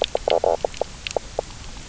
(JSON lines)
{"label": "biophony, knock croak", "recorder": "SoundTrap 300"}